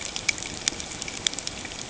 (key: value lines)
label: ambient
recorder: HydroMoth